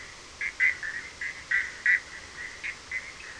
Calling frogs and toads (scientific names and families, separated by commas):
Boana bischoffi (Hylidae)